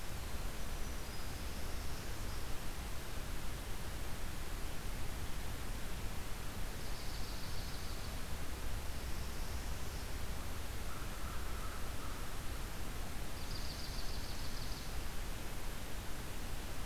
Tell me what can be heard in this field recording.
Black-throated Green Warbler, Northern Parula, Dark-eyed Junco, American Crow